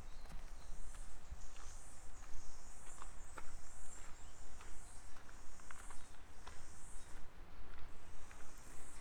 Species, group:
Amphipsalta zelandica, Cicadidae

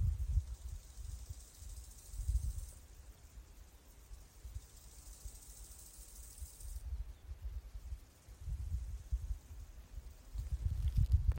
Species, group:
Chorthippus biguttulus, Orthoptera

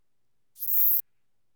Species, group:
Eupholidoptera forcipata, Orthoptera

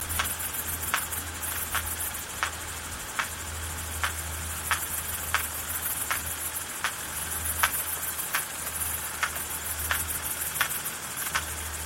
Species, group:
Isophya camptoxypha, Orthoptera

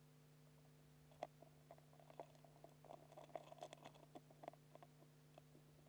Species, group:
Eumodicogryllus bordigalensis, Orthoptera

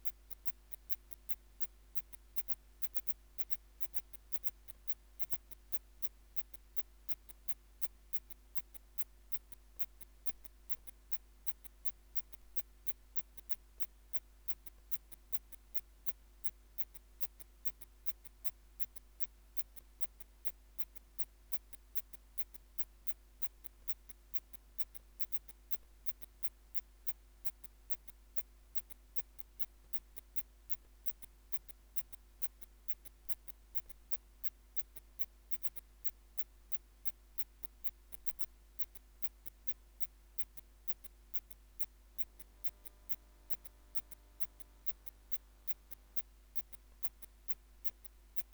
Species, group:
Phaneroptera falcata, Orthoptera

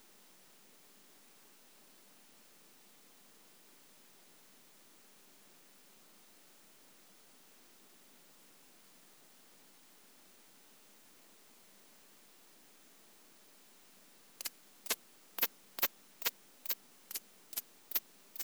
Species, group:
Thyreonotus corsicus, Orthoptera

